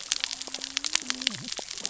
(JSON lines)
{"label": "biophony, cascading saw", "recorder": "SoundTrap 600 or HydroMoth"}